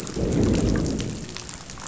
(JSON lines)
{"label": "biophony, growl", "recorder": "SoundTrap 500"}